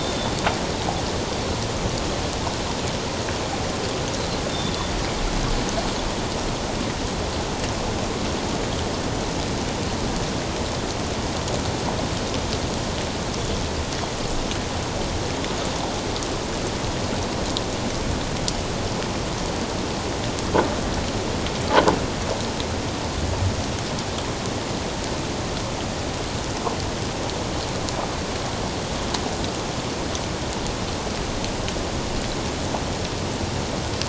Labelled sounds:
0.0	0.3	Pacific white-sided dolphin, 3.4 to 3.7 kHz
4.5	4.9	Pacific white-sided dolphin, 3.4 to 3.7 kHz

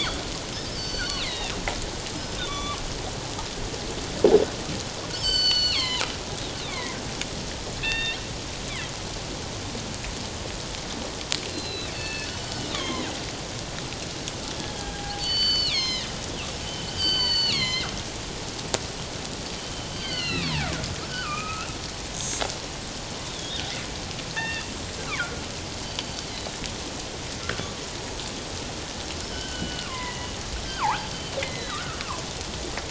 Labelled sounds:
1.2	1.6	killer whale, northern resident, G clan, 1.8 to 3.0 kHz
2.4	2.8	killer whale, northern resident, G clan, 1.0 to 3.8 kHz
5.1	6.0	killer whale, northern resident, G clan, 0.88 to 7.7 kHz
6.7	7.0	killer whale, northern resident, G clan, 0.94 to 2.5 kHz
7.8	8.2	killer whale, northern resident, G clan, 1.7 to 3.8 kHz
11.5	13.1	killer whale, northern resident, G clan, 0.97 to 4.5 kHz
14.8	16.1	killer whale, northern resident, G clan, 0.78 to 6.7 kHz
16.9	17.9	killer whale, northern resident, G clan, 0.97 to 7.6 kHz
19.6	20.8	killer whale, northern resident, G clan, 0.78 to 4.8 kHz
21.1	21.7	killer whale, northern resident, G clan, 1.1 to 2.6 kHz
23.3	23.6	killer whale, northern resident, G clan, 3.2 to 3.8 kHz
24.4	25.4	killer whale, northern resident, G clan, 1.3 to 7.6 kHz
25.9	26.5	killer whale, northern resident, G clan, 3.7 to 4.7 kHz
29.3	30.3	killer whale, northern resident, G clan, 0.94 to 3.2 kHz
30.7	32.0	killer whale, northern resident, G clan, 0.78 to 4.8 kHz

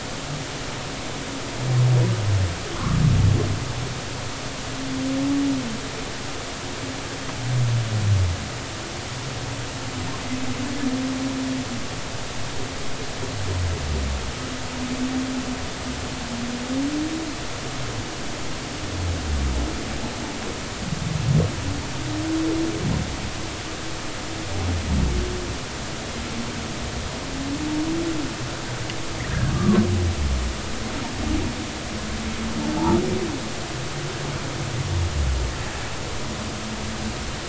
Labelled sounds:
2.7	3.0	humpback whale, 0.99 to 1.5 kHz
29.5	29.8	humpback whale, 1.0 to 1.3 kHz

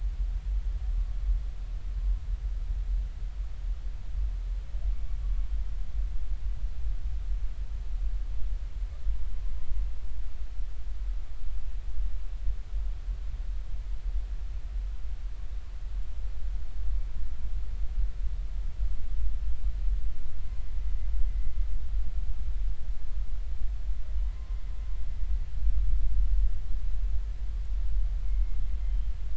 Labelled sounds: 24.3	24.6	humpback whale, 0.99 to 1.1 kHz
28.8	29.1	humpback whale, 3.0 to 3.2 kHz

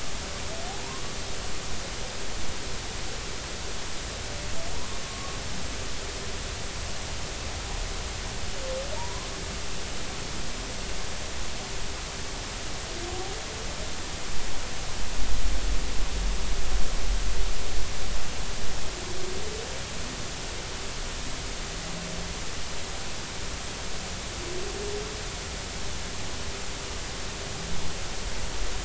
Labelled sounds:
4.7	5.4	humpback whale, 0.86 to 1.2 kHz
9.0	9.3	humpback whale, 0.86 to 1.1 kHz

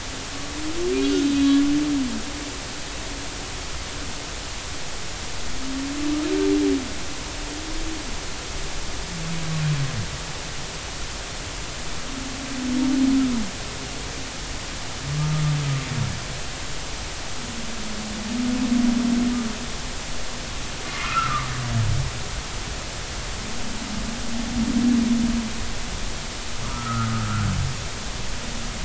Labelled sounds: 1.0	1.6	humpback whale, 3.0 to 3.7 kHz
20.9	21.5	humpback whale, 0.99 to 1.5 kHz
26.6	27.4	humpback whale, 0.93 to 1.5 kHz

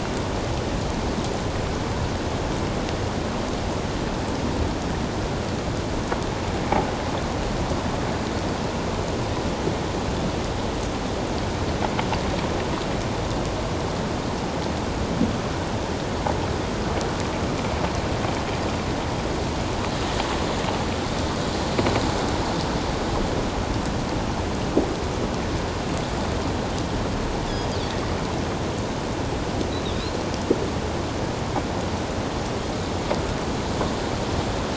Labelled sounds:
27.5	27.8	Pacific white-sided dolphin, 4.7 to 5.1 kHz
29.9	30.2	Pacific white-sided dolphin, 3.6 to 4.3 kHz

